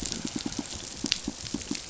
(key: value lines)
label: biophony, pulse
recorder: SoundTrap 500